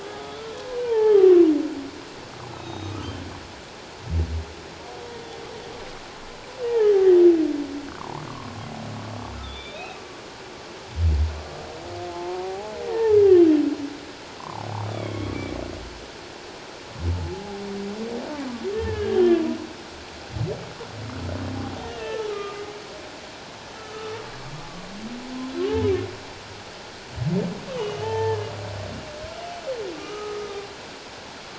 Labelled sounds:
0.0	0.6	humpback whale, 1.2 to 1.4 kHz
0.8	1.5	humpback whale, 0.78 to 1.9 kHz
2.6	3.1	humpback whale, 1.2 to 6.3 kHz
6.6	6.9	humpback whale, 1.7 to 1.9 kHz
7.9	8.3	humpback whale, 0.81 to 1.4 kHz
9.4	9.9	humpback whale, 3.3 to 3.8 kHz
12.1	13.2	humpback whale, 0.78 to 1.9 kHz
14.4	15.3	humpback whale, 0.78 to 3.6 kHz
17.1	17.6	humpback whale, 0.78 to 0.91 kHz
18.8	19.5	humpback whale, 1.6 to 3.2 kHz
22.0	22.6	humpback whale, 1.2 to 1.9 kHz
23.8	24.1	humpback whale, 1.2 to 1.4 kHz
27.7	28.5	humpback whale, 0.81 to 3.2 kHz
29.9	30.7	humpback whale, 1.1 to 1.3 kHz

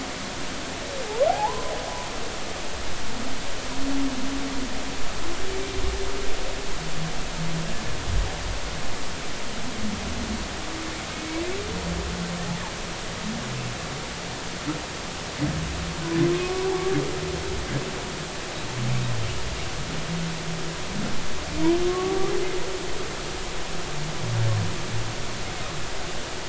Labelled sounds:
1.3	1.7	humpback whale, 0.80 to 1.1 kHz
11.1	11.4	humpback whale, 2.2 to 2.3 kHz
16.4	16.7	humpback whale, 1.1 to 1.2 kHz
21.9	22.3	humpback whale, 1.1 to 1.2 kHz

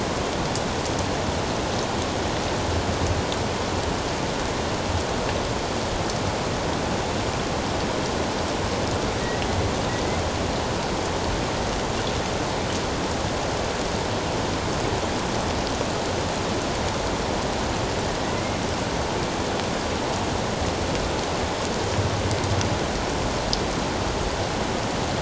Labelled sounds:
9.9	10.2	killer whale, northern resident, A clan, AA subclan, 1.9 to 2.2 kHz

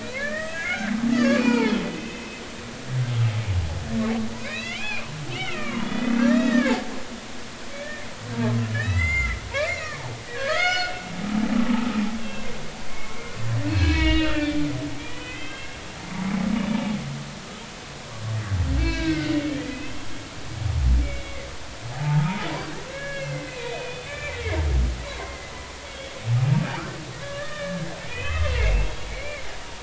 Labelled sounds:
0.0	2.4	humpback whale, 0.83 to 6.6 kHz
4.4	5.0	humpback whale, 1.5 to 4.1 kHz
5.3	6.7	humpback whale, 0.90 to 5.2 kHz
7.8	8.1	humpback whale, 1.7 to 1.9 kHz
8.7	10.0	humpback whale, 1.3 to 5.7 kHz
10.4	12.5	humpback whale, 1.0 to 7.4 kHz
13.7	14.7	humpback whale, 1.2 to 4.4 kHz
15.0	15.8	humpback whale, 2.0 to 3.3 kHz
16.7	17.0	humpback whale, 0.83 to 0.96 kHz
18.8	20.0	humpback whale, 0.96 to 4.0 kHz
21.0	24.4	humpback whale, 0.80 to 3.6 kHz
25.0	26.1	humpback whale, 0.90 to 3.4 kHz
27.2	29.5	humpback whale, 1.1 to 3.2 kHz

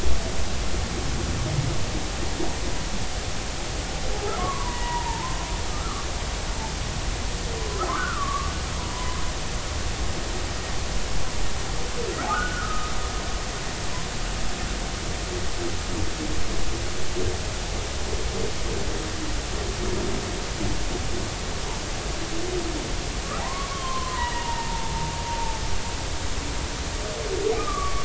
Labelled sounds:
4.4	6.1	humpback whale, 0.83 to 2.0 kHz
7.7	9.2	humpback whale, 0.93 to 1.6 kHz
12.3	12.9	humpback whale, 1.2 to 1.6 kHz
23.4	25.1	humpback whale, 0.80 to 3.0 kHz
27.5	28.0	humpback whale, 1.1 to 1.3 kHz

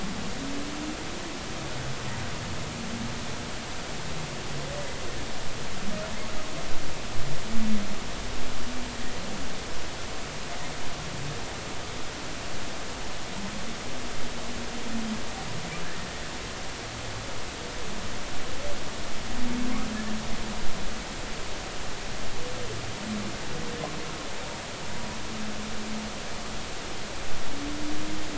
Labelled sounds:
15.8	16.1	humpback whale, 1.6 to 1.9 kHz

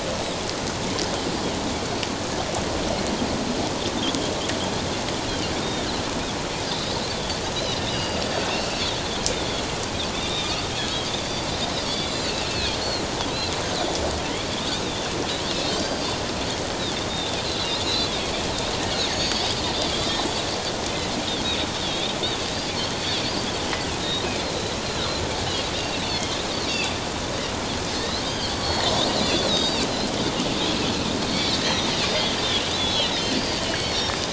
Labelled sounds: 5.6	7.0	Pacific white-sided dolphin, 3.5 to 4.0 kHz
7.5	8.8	Pacific white-sided dolphin, 2.6 to 5.0 kHz
10.2	10.6	Pacific white-sided dolphin, 2.3 to 4.9 kHz
11.8	13.5	Pacific white-sided dolphin, 2.3 to 4.7 kHz
15.7	16.1	Pacific white-sided dolphin, 1.5 to 4.8 kHz
17.1	20.1	Pacific white-sided dolphin, 3.2 to 6.8 kHz
21.8	22.1	Pacific white-sided dolphin, 3.2 to 3.8 kHz
24.0	25.1	Pacific white-sided dolphin, 3.6 to 4.2 kHz
25.8	27.0	Pacific white-sided dolphin, 2.6 to 4.7 kHz
28.0	29.8	Pacific white-sided dolphin, 2.9 to 5.4 kHz
31.2	32.3	Pacific white-sided dolphin, 3.6 to 6.2 kHz
32.7	34.1	Pacific white-sided dolphin, 2.8 to 5.7 kHz

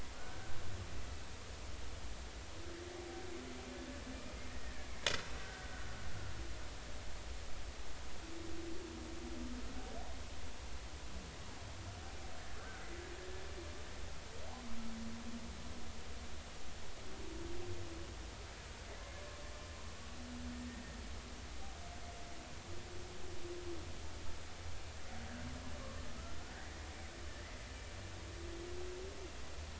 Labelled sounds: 0.1	0.4	killer whale, Bigg's (transient), 1.4 to 1.6 kHz
4.5	6.0	killer whale, Bigg's (transient), 1.4 to 1.9 kHz
12.6	12.8	killer whale, Bigg's (transient), 1.2 to 1.6 kHz

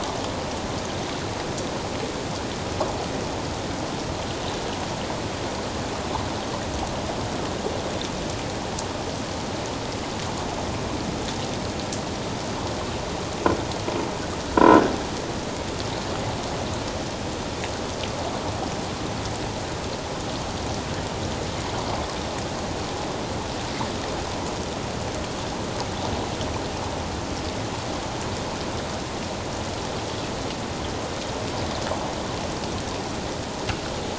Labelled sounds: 14.5	14.8	croaking sound likely from a nearby submerged object, 0.91 to 1.5 kHz

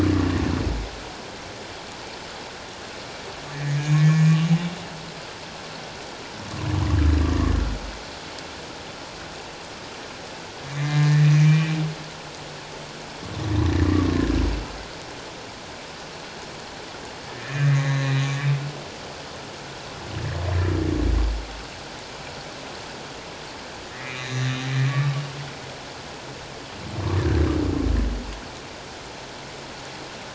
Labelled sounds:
3.5	4.3	humpback whale, 1.7 to 2.5 kHz
10.7	11.7	humpback whale, 1.6 to 6.0 kHz
17.3	18.3	humpback whale, 1.7 to 4.0 kHz
23.9	24.6	humpback whale, 1.7 to 6.1 kHz
24.9	25.1	humpback whale, 1.1 to 1.2 kHz
27.1	27.4	humpback whale, 1.4 to 1.9 kHz

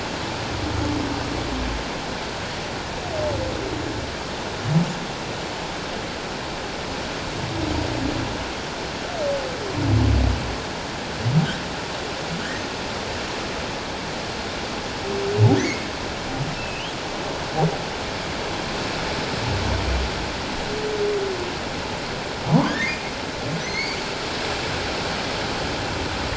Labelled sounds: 15.6	15.9	humpback whale, 1.6 to 2.3 kHz
16.6	16.9	humpback whale, 2.5 to 3.4 kHz
22.7	23.1	humpback whale, 1.5 to 2.5 kHz
23.6	24.0	humpback whale, 1.9 to 6.4 kHz

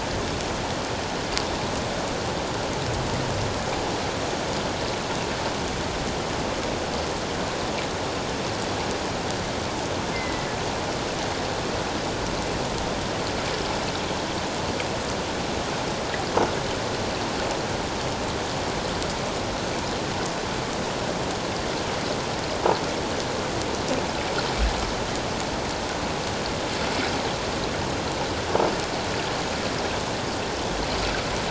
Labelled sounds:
10.1	10.5	killer whale, northern resident, G clan, 1.8 to 2.2 kHz

